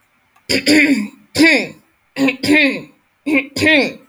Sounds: Throat clearing